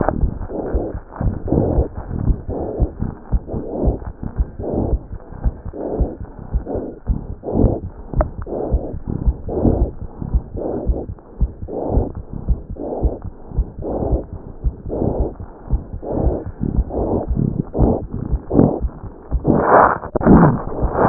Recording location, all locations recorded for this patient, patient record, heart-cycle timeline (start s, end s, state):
aortic valve (AV)
aortic valve (AV)+mitral valve (MV)
#Age: Infant
#Sex: Male
#Height: nan
#Weight: 8.5 kg
#Pregnancy status: False
#Murmur: Unknown
#Murmur locations: nan
#Most audible location: nan
#Systolic murmur timing: nan
#Systolic murmur shape: nan
#Systolic murmur grading: nan
#Systolic murmur pitch: nan
#Systolic murmur quality: nan
#Diastolic murmur timing: nan
#Diastolic murmur shape: nan
#Diastolic murmur grading: nan
#Diastolic murmur pitch: nan
#Diastolic murmur quality: nan
#Outcome: Abnormal
#Campaign: 2014 screening campaign
0.00	2.19	unannotated
2.19	2.26	diastole
2.26	2.38	S1
2.38	2.50	systole
2.50	2.58	S2
2.58	2.78	diastole
2.78	2.90	S1
2.90	3.02	systole
3.02	3.12	S2
3.12	3.32	diastole
3.32	3.42	S1
3.42	3.54	systole
3.54	3.62	S2
3.62	3.82	diastole
3.82	3.96	S1
3.96	4.06	systole
4.06	4.14	S2
4.14	4.38	diastole
4.38	4.48	S1
4.48	4.58	systole
4.58	4.68	S2
4.68	4.88	diastole
4.88	5.00	S1
5.00	5.12	systole
5.12	5.20	S2
5.20	5.42	diastole
5.42	5.54	S1
5.54	5.66	systole
5.66	5.74	S2
5.74	5.98	diastole
5.98	6.10	S1
6.10	6.22	systole
6.22	6.30	S2
6.30	6.52	diastole
6.52	6.62	S1
6.62	6.74	systole
6.74	6.86	S2
6.86	7.08	diastole
7.08	7.20	S1
7.20	7.28	systole
7.28	7.36	S2
7.36	7.59	diastole
7.59	7.72	S1
7.72	7.84	systole
7.84	7.92	S2
7.92	8.16	diastole
8.16	8.28	S1
8.28	8.38	systole
8.38	8.48	S2
8.48	8.70	diastole
8.70	8.82	S1
8.82	8.94	systole
8.94	9.02	S2
9.02	9.26	diastole
9.26	9.36	S1
9.36	9.47	systole
9.47	9.54	S2
9.54	9.76	diastole
9.76	9.88	S1
9.88	10.01	systole
10.01	10.08	S2
10.08	10.32	diastole
10.32	10.44	S1
10.44	10.56	systole
10.56	10.66	S2
10.66	10.86	diastole
10.86	10.97	S1
10.97	11.10	systole
11.10	11.20	S2
11.20	11.40	diastole
11.40	11.50	S1
11.50	11.60	systole
11.60	11.70	S2
11.70	11.92	diastole
11.92	12.03	S1
12.03	12.16	systole
12.16	12.26	S2
12.26	12.48	diastole
12.48	12.58	S1
12.58	12.70	systole
12.70	12.80	S2
12.80	13.02	diastole
13.02	13.14	S1
13.14	13.24	systole
13.24	13.34	S2
13.34	13.56	diastole
13.56	13.68	S1
13.68	13.78	systole
13.78	13.88	S2
13.88	14.08	diastole
14.08	14.20	S1
14.20	14.34	systole
14.34	14.42	S2
14.42	14.64	diastole
14.64	14.74	S1
14.74	14.86	systole
14.86	14.94	S2
14.94	15.18	diastole
15.18	15.28	S1
15.28	15.40	systole
15.40	15.48	S2
15.48	15.70	diastole
15.70	15.82	S1
15.82	15.92	systole
15.92	16.00	S2
16.00	16.22	diastole
16.22	16.36	S1
16.36	16.46	systole
16.46	16.54	S2
16.54	16.75	diastole
16.75	16.86	S1
16.86	16.99	systole
16.99	17.08	S2
17.08	17.30	diastole
17.30	21.09	unannotated